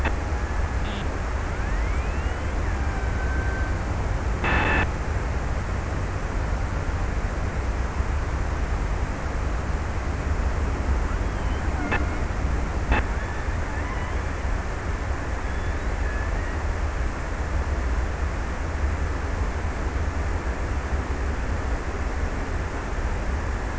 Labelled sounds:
2.4	4.0	killer whale, Bigg's (transient), 0.49 to 2.2 kHz

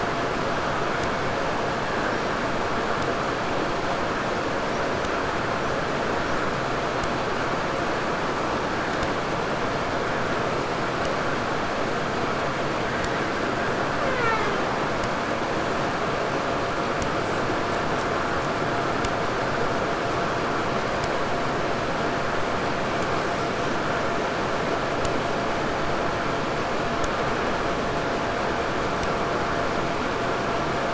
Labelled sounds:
4.5	7.1	killer whale, 5.3 to 8.0 kHz
13.3	14.9	killer whale, Bigg's (transient), 0.28 to 8.0 kHz

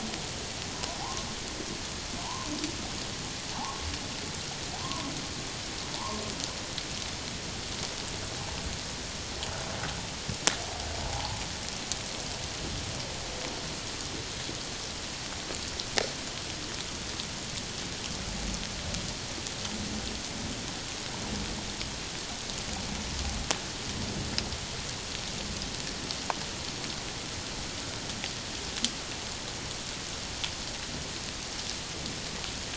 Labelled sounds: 2.2	2.5	humpback whale, 0.78 to 1.1 kHz
3.6	3.8	humpback whale, 0.78 to 1.2 kHz
4.8	5.1	humpback whale, 0.94 to 1.2 kHz
11.0	11.4	humpback whale, 0.78 to 1.1 kHz

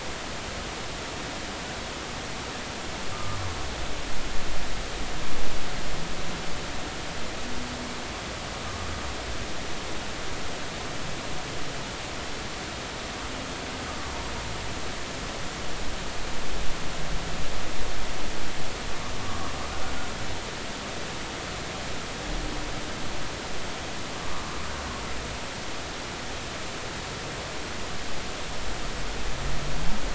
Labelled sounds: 3.1	3.4	humpback whale, 1.15 to 1.25 kHz

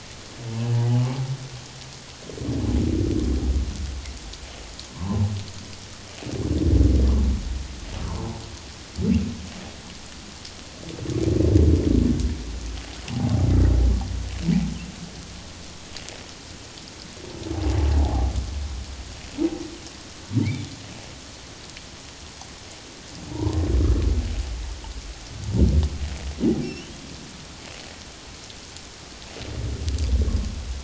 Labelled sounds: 0.8	1.2	humpback whale, 0.78 to 0.91 kHz
4.9	5.2	humpback whale, 0.78 to 1.1 kHz
8.0	8.3	humpback whale, 0.78 to 1.2 kHz
18.0	18.3	humpback whale, 0.78 to 0.94 kHz
23.3	23.7	humpback whale, 0.81 to 1.1 kHz
26.6	26.9	humpback whale, 2.6 to 2.8 kHz

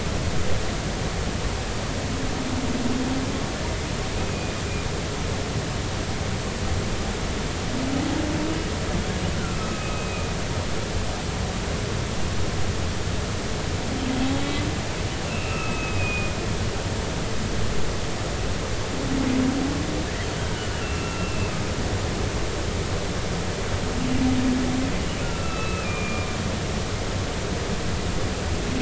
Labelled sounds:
4.2	4.5	humpback whale, 2.4 to 2.6 kHz
9.4	10.3	humpback whale, 1.2 to 2.6 kHz
15.2	16.3	humpback whale, 1.2 to 2.8 kHz
20.4	21.5	humpback whale, 1.3 to 2.8 kHz
25.2	26.3	humpback whale, 1.2 to 2.7 kHz

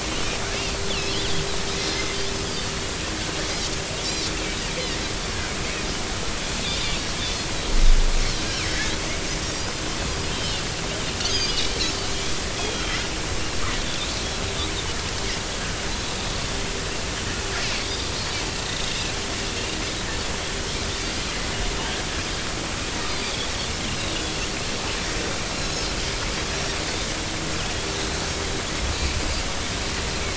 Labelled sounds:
0.5	0.8	Pacific white-sided dolphin, 2.6 to 2.8 kHz
2.5	2.7	Pacific white-sided dolphin, 4.4 to 5.0 kHz
6.6	7.0	Pacific white-sided dolphin, 3.3 to 3.9 kHz
10.3	10.7	Pacific white-sided dolphin, 2.7 to 3.5 kHz
11.2	11.7	Pacific white-sided dolphin, 2.8 to 6.7 kHz
12.6	13.0	Pacific white-sided dolphin, 3.1 to 3.4 kHz
18.9	19.2	Pacific white-sided dolphin, 2.6 to 2.8 kHz
23.0	23.5	Pacific white-sided dolphin, 3.2 to 4.9 kHz
25.5	25.9	Pacific white-sided dolphin, 3.9 to 6.9 kHz

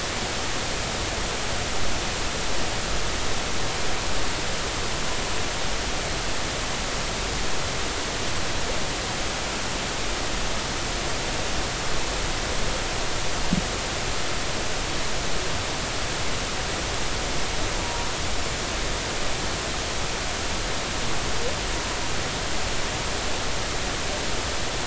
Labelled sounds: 17.8	18.1	humpback whale, 0.90 to 0.99 kHz

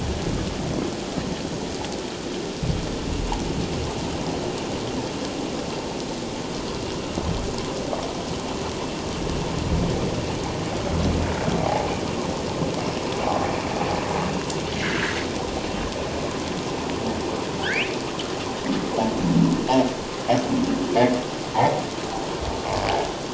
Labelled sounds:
11.6	11.9	humpback whale, 0.78 to 0.91 kHz
14.8	15.2	humpback whale, 1.3 to 6.2 kHz
17.6	17.9	humpback whale, 1.3 to 3.1 kHz

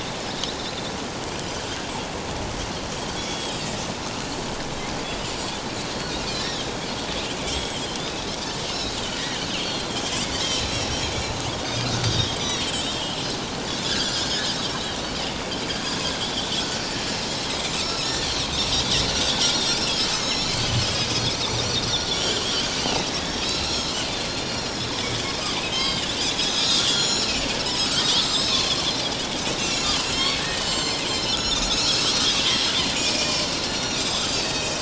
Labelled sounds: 3.1	3.8	Pacific white-sided dolphin, 3.0 to 5.8 kHz
6.3	6.7	Pacific white-sided dolphin, 3.1 to 4.6 kHz
7.5	8.3	Pacific white-sided dolphin, 2.9 to 7.8 kHz
8.7	9.9	Pacific white-sided dolphin, 3.1 to 4.5 kHz
10.3	11.1	Pacific white-sided dolphin, 2.5 to 5.9 kHz
11.6	13.4	Pacific white-sided dolphin, 2.6 to 6.0 kHz
14.2	14.4	Pacific white-sided dolphin, 5.1 to 5.3 kHz
16.2	16.6	Pacific white-sided dolphin, 2.9 to 3.6 kHz
17.7	18.9	Pacific white-sided dolphin, 1.2 to 7.3 kHz
20.1	22.5	Pacific white-sided dolphin, 2.4 to 6.9 kHz
22.8	24.0	Pacific white-sided dolphin, 2.5 to 5.7 kHz
24.3	26.0	Pacific white-sided dolphin, 2.0 to 5.7 kHz
26.4	27.9	Pacific white-sided dolphin, 3.2 to 7.1 kHz
28.2	34.8	Pacific white-sided dolphin, 1.3 to 8.0 kHz

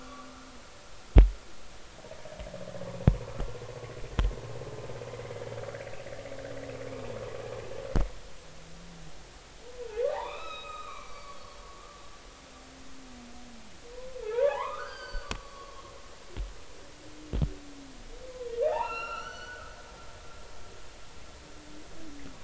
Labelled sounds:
5.3	5.5	humpback whale, 1.6 to 1.8 kHz
10.1	11.6	humpback whale, 0.80 to 5.3 kHz
14.2	15.8	humpback whale, 0.80 to 4.9 kHz
18.7	19.7	humpback whale, 0.80 to 6.0 kHz

